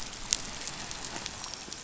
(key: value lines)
label: biophony, dolphin
recorder: SoundTrap 500